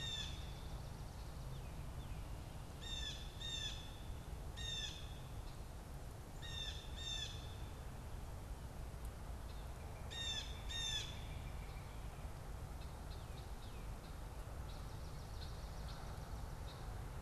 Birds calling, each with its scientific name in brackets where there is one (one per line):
Red-winged Blackbird (Agelaius phoeniceus)
Blue Jay (Cyanocitta cristata)
unidentified bird